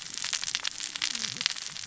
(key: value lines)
label: biophony, cascading saw
recorder: SoundTrap 600 or HydroMoth